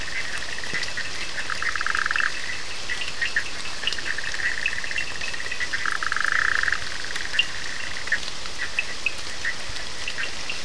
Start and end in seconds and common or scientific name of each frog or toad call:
0.0	5.8	Cochran's lime tree frog
0.0	10.6	Bischoff's tree frog
1.6	4.6	two-colored oval frog
7.2	10.6	Cochran's lime tree frog